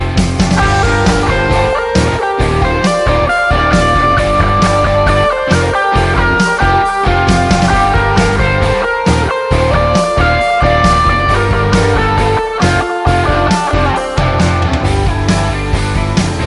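Instrumental rock music is playing. 0:00.0 - 0:16.4

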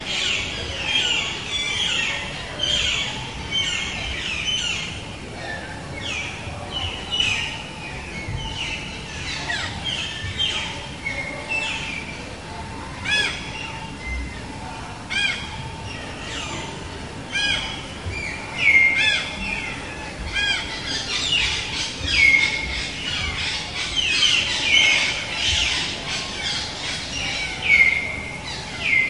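Various birds tweeting and calling in a tropical forest after the rain, each with distinct sounds. 0:00.0 - 0:29.1

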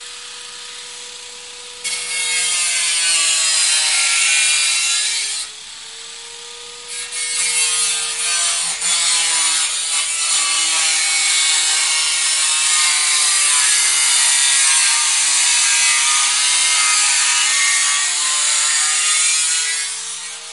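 A construction grinder is running. 0:00.0 - 0:01.8
The sound of a grinder sawing metal. 0:01.8 - 0:05.5
A construction grinder is running. 0:05.5 - 0:06.9
The sound of a grinder sawing metal. 0:06.9 - 0:20.5

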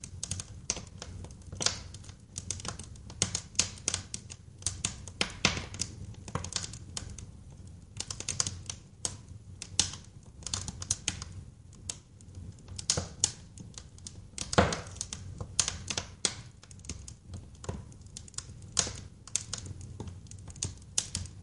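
A steady fire crackles with occasional popping sounds. 0:00.0 - 0:21.4

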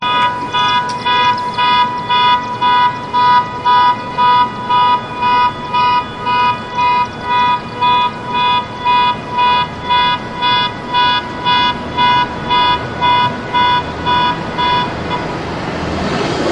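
A car alarm honks repeatedly in a sharp, rhythmic pattern. 0:00.0 - 0:14.9
A car engine noise gradually fading as the car drives away. 0:15.3 - 0:16.5

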